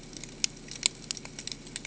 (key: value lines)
label: ambient
recorder: HydroMoth